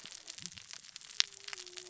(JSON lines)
{"label": "biophony, cascading saw", "recorder": "SoundTrap 600 or HydroMoth"}